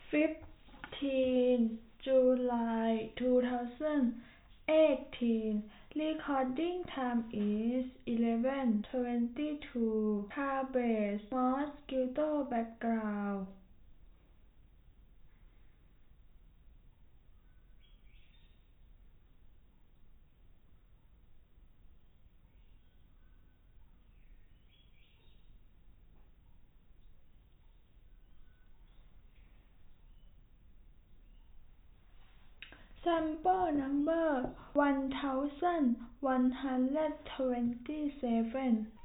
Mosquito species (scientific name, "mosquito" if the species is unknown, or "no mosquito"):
no mosquito